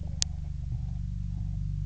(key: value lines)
label: anthrophony, boat engine
recorder: SoundTrap 300